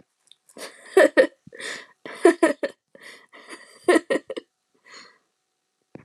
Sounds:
Laughter